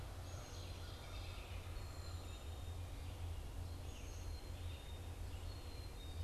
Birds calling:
American Crow (Corvus brachyrhynchos)
Black-capped Chickadee (Poecile atricapillus)
Red-eyed Vireo (Vireo olivaceus)
American Robin (Turdus migratorius)

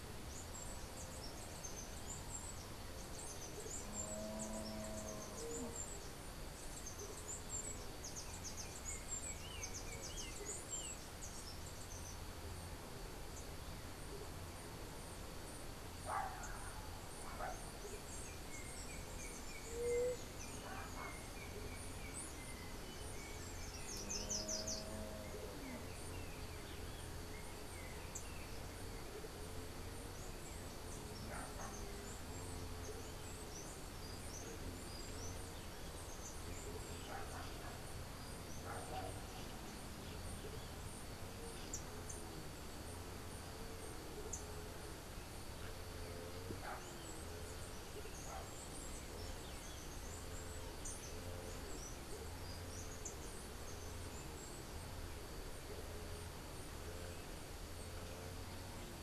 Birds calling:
unidentified bird
Yellow-backed Oriole (Icterus chrysater)
Chestnut-capped Brushfinch (Arremon brunneinucha)
Slate-throated Redstart (Myioborus miniatus)
White-tipped Dove (Leptotila verreauxi)

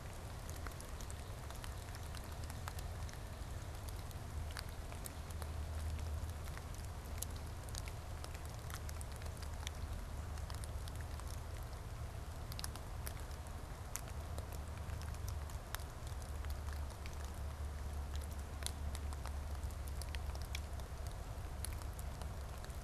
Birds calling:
Northern Cardinal (Cardinalis cardinalis)

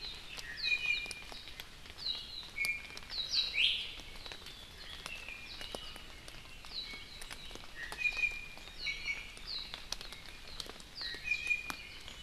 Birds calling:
Iiwi (Drepanis coccinea)
Warbling White-eye (Zosterops japonicus)

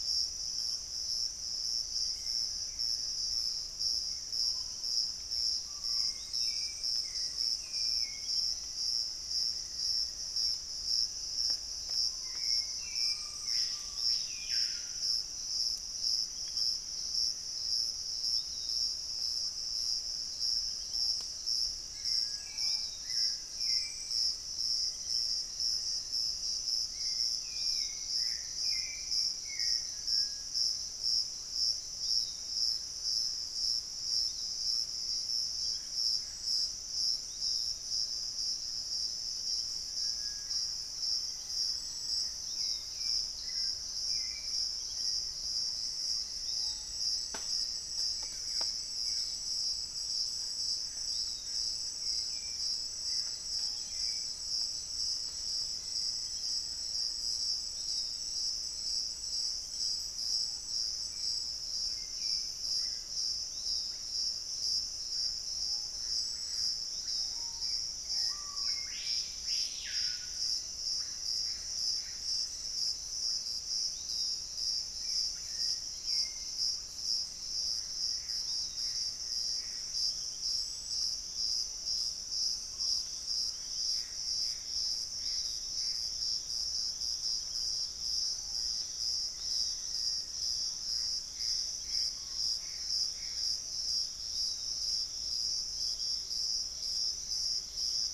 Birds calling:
Buff-throated Woodcreeper (Xiphorhynchus guttatus)
unidentified bird
Screaming Piha (Lipaugus vociferans)
Piratic Flycatcher (Legatus leucophaius)
Thrush-like Wren (Campylorhynchus turdinus)
Hauxwell's Thrush (Turdus hauxwelli)
Russet-backed Oropendola (Psarocolius angustifrons)
Black-faced Antthrush (Formicarius analis)
Gilded Barbet (Capito auratus)
Gray Antbird (Cercomacra cinerascens)

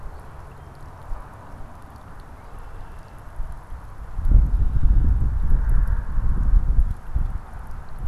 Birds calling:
Red-winged Blackbird (Agelaius phoeniceus)

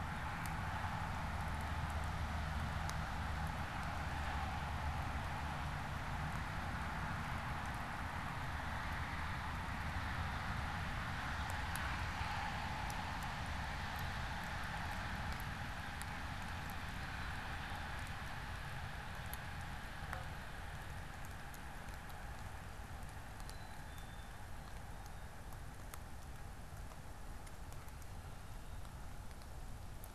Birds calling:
Black-capped Chickadee (Poecile atricapillus)

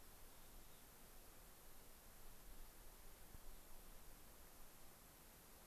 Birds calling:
Mountain Chickadee (Poecile gambeli)

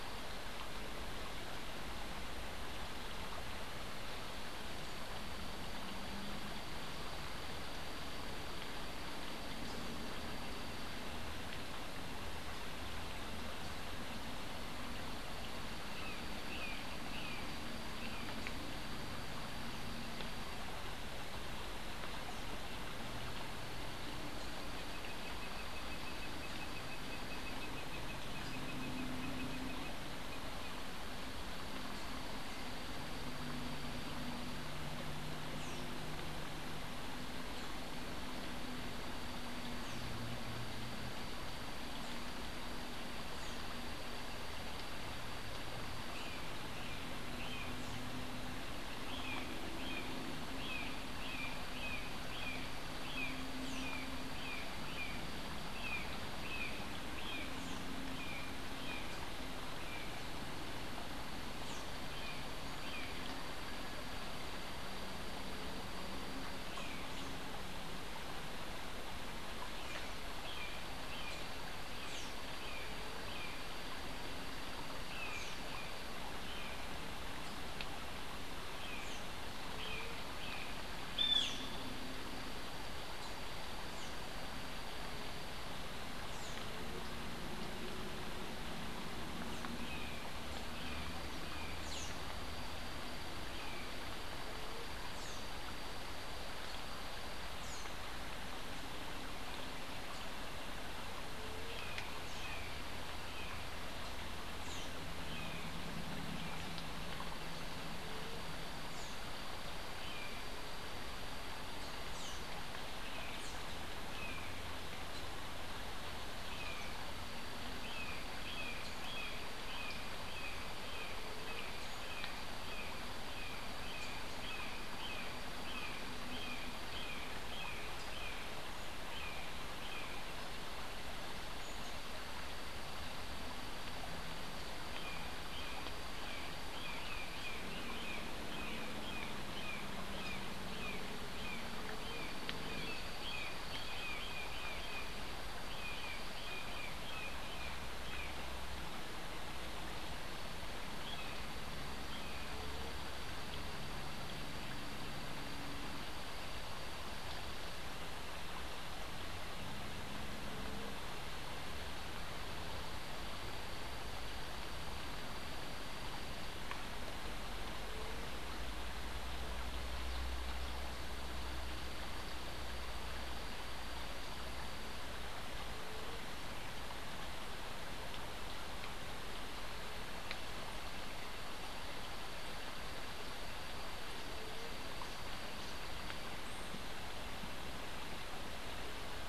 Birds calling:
Blue-gray Tanager (Thraupis episcopus)
Great Kiskadee (Pitangus sulphuratus)
Brown Jay (Psilorhinus morio)

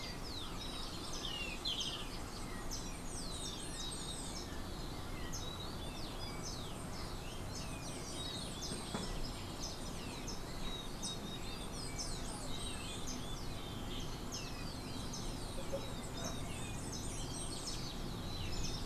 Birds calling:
Golden-faced Tyrannulet (Zimmerius chrysops)

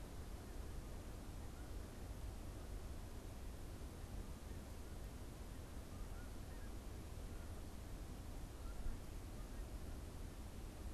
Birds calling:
Canada Goose (Branta canadensis)

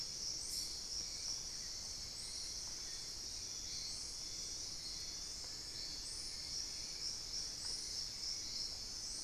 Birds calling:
Plain-winged Antshrike (Thamnophilus schistaceus)

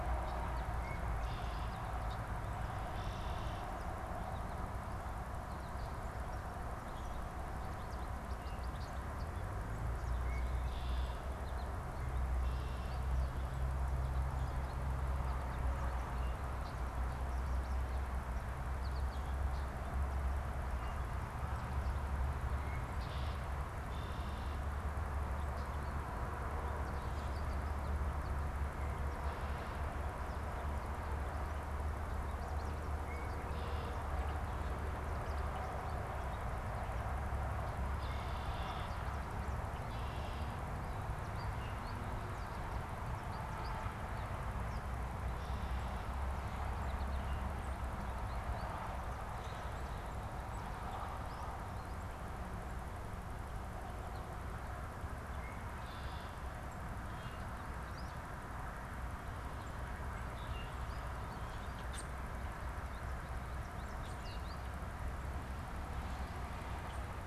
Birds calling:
Common Grackle (Quiscalus quiscula)
American Goldfinch (Spinus tristis)
Red-winged Blackbird (Agelaius phoeniceus)

